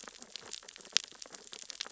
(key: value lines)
label: biophony, sea urchins (Echinidae)
recorder: SoundTrap 600 or HydroMoth